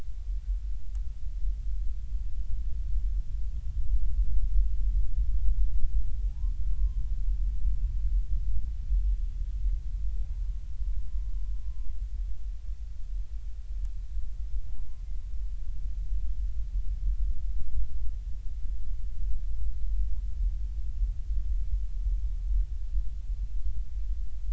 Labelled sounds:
6.3	7.0	humpback whale, 0.80 to 1.2 kHz
10.2	10.4	humpback whale, 0.80 to 0.99 kHz
14.7	15.0	humpback whale, 0.80 to 1.1 kHz

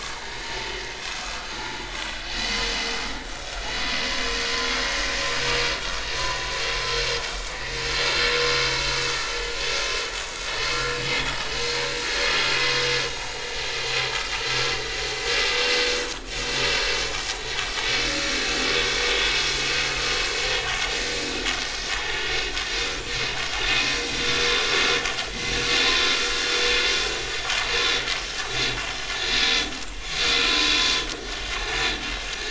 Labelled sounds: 0.4	1.9	vessel noise, 0.80 to 4.9 kHz
6.2	6.4	vessel noise, 6.8 to 7.0 kHz
8.6	8.9	vessel noise, 3.9 to 5.8 kHz
10.7	11.0	vessel noise, 1.3 to 1.5 kHz
11.6	11.9	vessel noise, 4.1 to 4.3 kHz
13.0	13.3	vessel noise, 6.4 to 6.6 kHz
15.9	16.2	vessel noise, 6.5 to 6.7 kHz
18.1	18.3	vessel noise, 1.3 to 1.4 kHz
22.9	23.1	vessel noise, 2.3 to 2.5 kHz
29.4	29.7	vessel noise, 5.7 to 5.9 kHz
30.5	30.7	vessel noise, 0.99 to 1.1 kHz

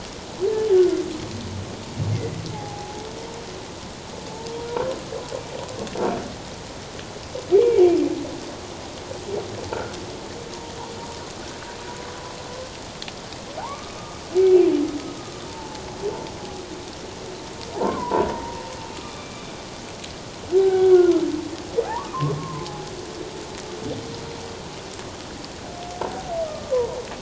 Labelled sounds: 2.1	3.1	humpback whale, 0.78 to 2.2 kHz
7.5	7.8	humpback whale, 2.2 to 2.4 kHz
13.6	14.0	humpback whale, 0.78 to 1.3 kHz
15.5	15.8	humpback whale, 0.81 to 0.97 kHz
17.7	19.5	humpback whale, 0.78 to 2.5 kHz
20.6	21.2	humpback whale, 0.78 to 1.6 kHz
21.9	22.9	humpback whale, 0.78 to 1.3 kHz
26.4	27.0	humpback whale, 0.91 to 1.3 kHz

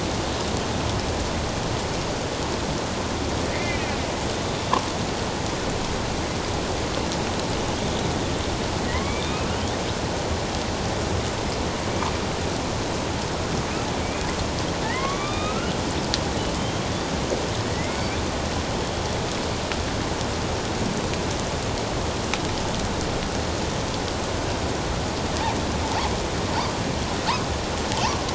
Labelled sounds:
3.4	4.7	killer whale, northern resident, A clan, AB subclan, 1.7 to 3.6 kHz
8.9	9.6	killer whale, northern resident, A clan, AB subclan, 0.88 to 3.8 kHz
14.0	15.7	killer whale, northern resident, A clan, AB subclan, 0.97 to 3.8 kHz
16.6	16.9	killer whale, northern resident, A clan, AB subclan, 3.1 to 3.3 kHz
17.7	18.2	killer whale, northern resident, A clan, AB subclan, 1.8 to 2.4 kHz
25.8	26.2	killer whale, northern resident, A clan, AB subclan, 0.78 to 1.1 kHz

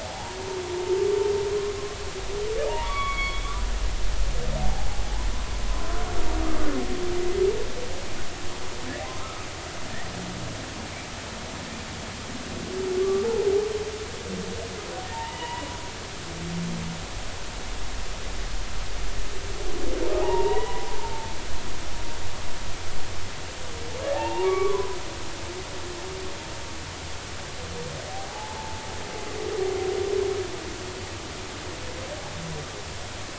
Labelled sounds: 2.7	3.6	humpback whale, 0.86 to 4.5 kHz
4.6	4.9	humpback whale, 0.80 to 0.93 kHz
9.2	9.5	humpback whale, 1.2 to 1.4 kHz
13.0	13.3	humpback whale, 1.1 to 1.2 kHz
15.1	15.7	humpback whale, 0.83 to 3.0 kHz
20.2	21.3	humpback whale, 0.80 to 2.0 kHz
24.0	24.9	humpback whale, 0.80 to 2.8 kHz
28.3	28.8	humpback whale, 0.80 to 0.99 kHz

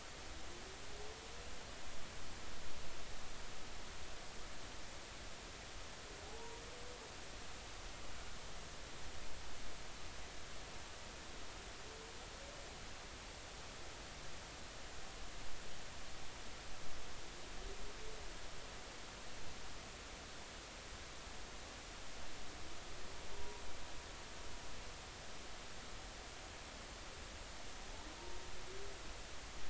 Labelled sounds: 23.3	23.6	humpback whale, 0.86 to 1.0 kHz

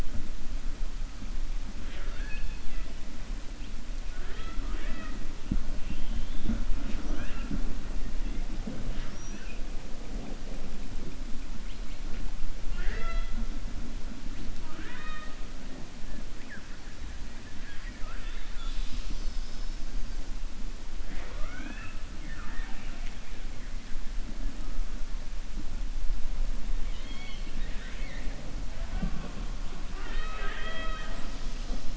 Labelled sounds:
1.8	2.9	killer whale, 0.56 to 4.5 kHz
4.1	5.2	killer whale, 0.38 to 4.0 kHz
5.8	6.5	killer whale, 2.4 to 4.0 kHz
22.1	23.2	killer whale, 0.75 to 3.2 kHz
26.8	28.3	killer whale, 1.6 to 4.5 kHz
29.8	31.9	killer whale, 0.40 to 7.1 kHz

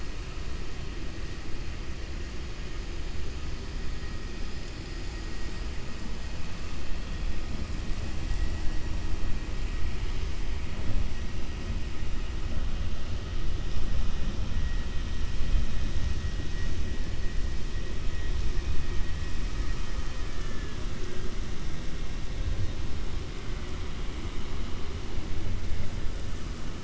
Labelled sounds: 19.7	20.8	vessel noise, 1.0 to 3.1 kHz

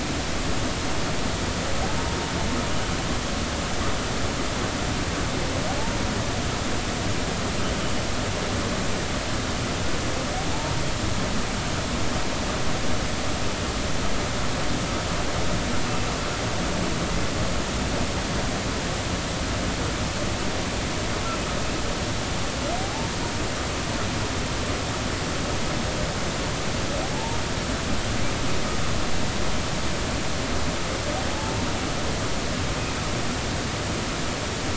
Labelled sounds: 22.8	23.1	humpback whale, 0.80 to 0.96 kHz
27.1	27.4	humpback whale, 0.83 to 0.96 kHz
31.3	31.5	humpback whale, 0.80 to 0.93 kHz

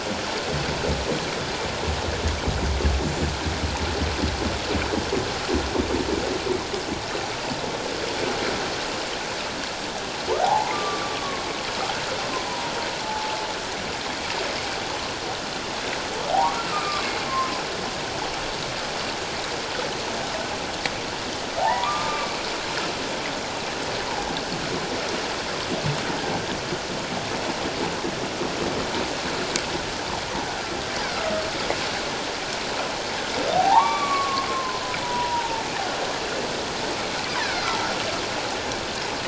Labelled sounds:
10.4	11.4	humpback whale, 0.78 to 1.2 kHz
12.3	13.4	humpback whale, 0.81 to 1.1 kHz
16.3	17.6	humpback whale, 0.78 to 1.4 kHz
21.6	22.4	humpback whale, 0.78 to 2.5 kHz
31.0	31.3	humpback whale, 1.2 to 1.7 kHz
33.5	35.6	humpback whale, 0.78 to 3.5 kHz
37.4	37.9	humpback whale, 1.2 to 2.2 kHz

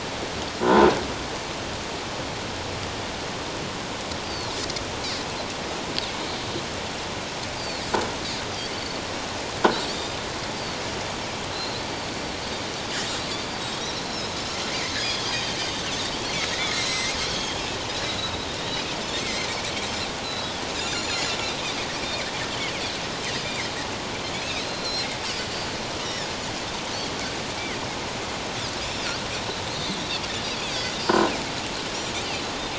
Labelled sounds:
4.2	4.5	Pacific white-sided dolphin, 3.9 to 4.8 kHz
7.6	7.8	Pacific white-sided dolphin, 4.1 to 4.8 kHz
8.7	9.0	Pacific white-sided dolphin, 4.3 to 4.6 kHz
10.5	10.8	Pacific white-sided dolphin, 4.3 to 4.8 kHz
11.5	11.8	Pacific white-sided dolphin, 3.9 to 4.4 kHz
13.8	15.9	Pacific white-sided dolphin, 3.1 to 5.6 kHz
16.6	17.6	Pacific white-sided dolphin, 1.8 to 7.9 kHz
18.1	18.5	Pacific white-sided dolphin, 3.7 to 4.1 kHz
19.2	19.5	Pacific white-sided dolphin, 2.0 to 2.3 kHz
20.2	20.6	Pacific white-sided dolphin, 3.7 to 4.1 kHz
20.9	21.5	Pacific white-sided dolphin, 3.9 to 7.2 kHz
23.4	23.7	Pacific white-sided dolphin, 1.9 to 2.5 kHz
24.4	25.1	Pacific white-sided dolphin, 3.6 to 5.9 kHz
28.8	30.0	Pacific white-sided dolphin, 3.3 to 4.4 kHz
30.7	30.9	Pacific white-sided dolphin, 4.4 to 4.8 kHz

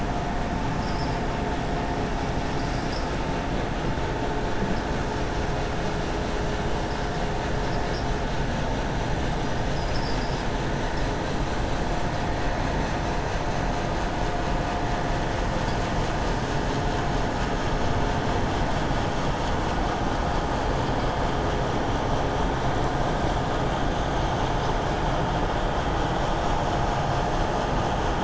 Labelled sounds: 2.4	3.1	vessel noise, 4.1 to 6.2 kHz

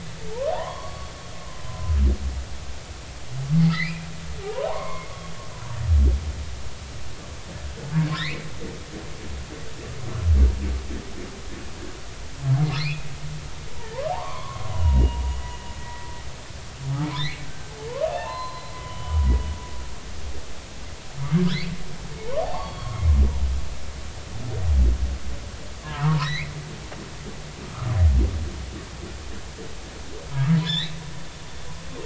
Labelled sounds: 0.3	1.1	humpback whale, 0.80 to 4.5 kHz
1.7	1.9	humpback whale, 0.96 to 1.1 kHz
3.7	4.1	humpback whale, 1.8 to 2.8 kHz
4.4	5.1	humpback whale, 0.80 to 2.2 kHz
8.2	8.5	humpback whale, 1.6 to 2.9 kHz
12.8	13.1	humpback whale, 1.7 to 2.9 kHz
14.1	16.0	humpback whale, 0.80 to 3.0 kHz
17.2	19.2	humpback whale, 0.83 to 4.2 kHz
22.4	23.0	humpback whale, 0.80 to 4.6 kHz
25.8	26.5	humpback whale, 0.83 to 6.2 kHz
30.3	31.0	humpback whale, 1.1 to 4.1 kHz

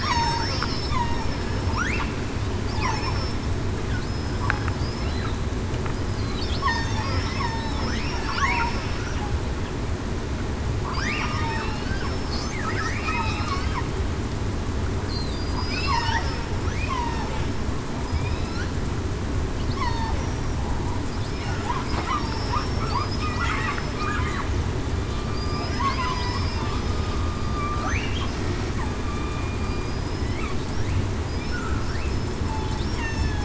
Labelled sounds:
0.0	0.9	killer whale, southern resident, 4.4 to 5.6 kHz
2.8	3.3	killer whale, southern resident, 5.3 to 5.6 kHz
4.1	4.4	killer whale, southern resident, 5.1 to 5.2 kHz
6.7	7.5	killer whale, southern resident, 3.4 to 5.4 kHz
11.2	12.3	killer whale, southern resident, 2.5 to 5.4 kHz
13.0	13.6	killer whale, southern resident, 2.4 to 2.9 kHz
15.3	16.1	killer whale, southern resident, 4.7 to 5.3 kHz
19.8	20.1	killer whale, southern resident, 0.73 to 1.1 kHz
21.3	21.7	killer whale, southern resident, 5.1 to 5.3 kHz
22.2	23.9	killer whale, southern resident, 4.4 to 5.5 kHz
25.3	26.4	killer whale, southern resident, 0.94 to 5.2 kHz
29.1	30.3	killer whale, southern resident, 2.3 to 5.2 kHz
31.5	31.8	killer whale, southern resident, 1.3 to 1.5 kHz
33.0	33.4	killer whale, southern resident, 1.6 to 2.8 kHz

